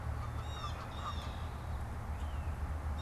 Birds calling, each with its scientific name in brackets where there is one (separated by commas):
Canada Goose (Branta canadensis), Blue Jay (Cyanocitta cristata)